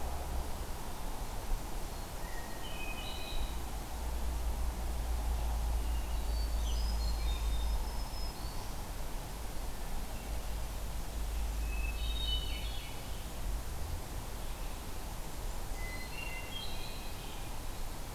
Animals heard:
Hermit Thrush (Catharus guttatus)
Black-throated Green Warbler (Setophaga virens)

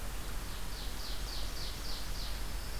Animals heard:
Ovenbird (Seiurus aurocapilla)

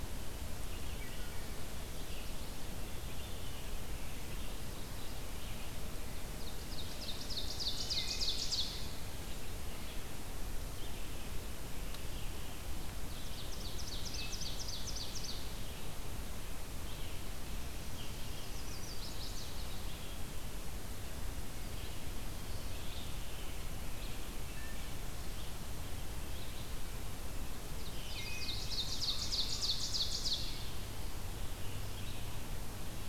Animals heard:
Mourning Warbler (Geothlypis philadelphia)
Wood Thrush (Hylocichla mustelina)
Ovenbird (Seiurus aurocapilla)
Chestnut-sided Warbler (Setophaga pensylvanica)
Red-eyed Vireo (Vireo olivaceus)

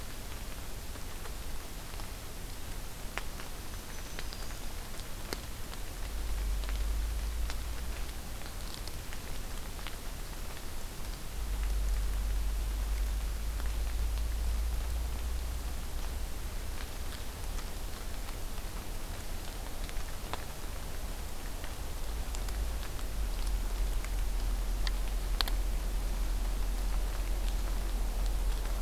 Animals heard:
Black-throated Green Warbler (Setophaga virens)

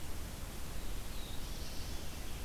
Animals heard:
Veery (Catharus fuscescens)
Red-eyed Vireo (Vireo olivaceus)
Black-throated Blue Warbler (Setophaga caerulescens)

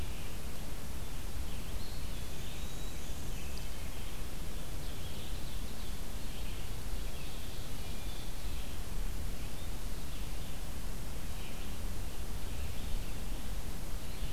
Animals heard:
Black-and-white Warbler (Mniotilta varia)
Ovenbird (Seiurus aurocapilla)
Red-eyed Vireo (Vireo olivaceus)
Eastern Wood-Pewee (Contopus virens)

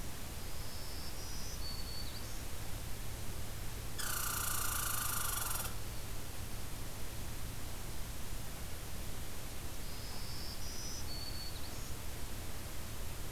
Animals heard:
Black-throated Green Warbler (Setophaga virens)
Red Squirrel (Tamiasciurus hudsonicus)

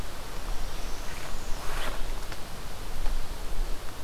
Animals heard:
Northern Parula (Setophaga americana)

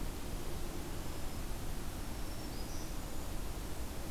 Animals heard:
Black-throated Green Warbler (Setophaga virens)

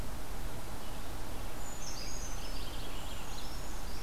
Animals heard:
Brown Creeper (Certhia americana)
Red-eyed Vireo (Vireo olivaceus)
Purple Finch (Haemorhous purpureus)

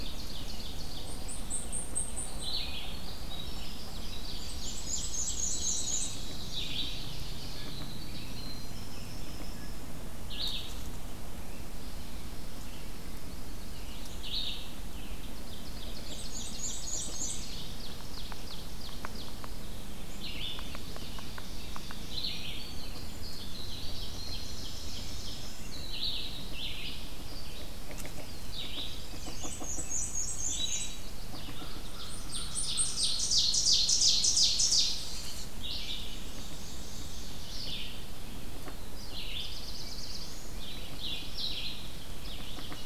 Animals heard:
Winter Wren (Troglodytes hiemalis)
Blackpoll Warbler (Setophaga striata)
American Crow (Corvus brachyrhynchos)
Red-eyed Vireo (Vireo olivaceus)
American Robin (Turdus migratorius)
Black-throated Blue Warbler (Setophaga caerulescens)
Black-and-white Warbler (Mniotilta varia)
Chestnut-sided Warbler (Setophaga pensylvanica)
Ovenbird (Seiurus aurocapilla)

